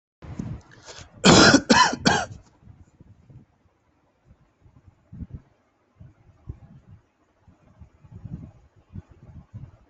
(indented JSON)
{
  "expert_labels": [
    {
      "quality": "ok",
      "cough_type": "wet",
      "dyspnea": false,
      "wheezing": false,
      "stridor": false,
      "choking": false,
      "congestion": false,
      "nothing": true,
      "diagnosis": "lower respiratory tract infection",
      "severity": "mild"
    }
  ],
  "age": 34,
  "gender": "male",
  "respiratory_condition": true,
  "fever_muscle_pain": false,
  "status": "symptomatic"
}